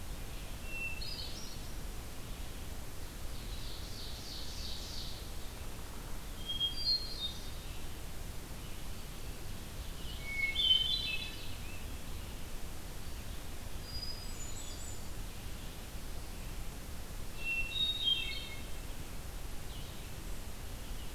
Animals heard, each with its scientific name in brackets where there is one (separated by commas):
Scarlet Tanager (Piranga olivacea), Ovenbird (Seiurus aurocapilla), Red-eyed Vireo (Vireo olivaceus), Hermit Thrush (Catharus guttatus)